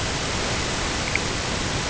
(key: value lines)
label: ambient
recorder: HydroMoth